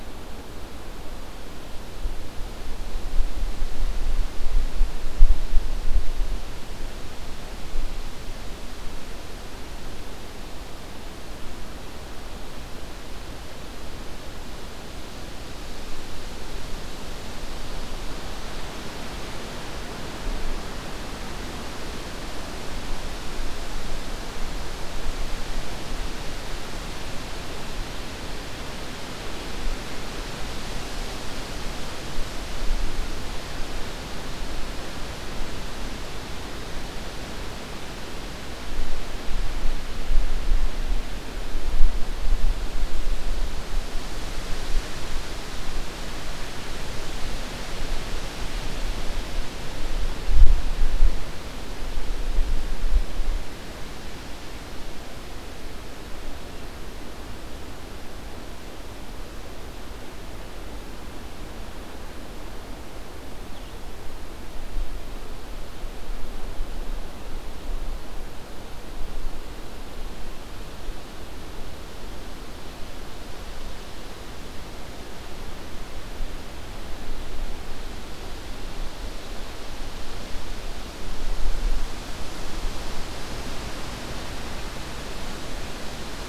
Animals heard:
forest ambience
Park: Acadia National Park